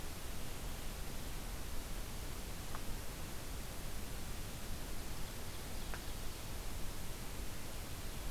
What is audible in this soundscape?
forest ambience